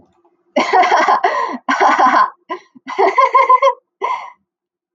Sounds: Laughter